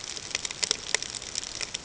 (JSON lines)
{"label": "ambient", "recorder": "HydroMoth"}